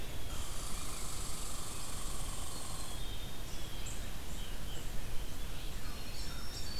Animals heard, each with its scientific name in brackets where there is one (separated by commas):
Blue Jay (Cyanocitta cristata), Red-eyed Vireo (Vireo olivaceus), unknown mammal, Black-throated Green Warbler (Setophaga virens), Red Squirrel (Tamiasciurus hudsonicus), Black-capped Chickadee (Poecile atricapillus)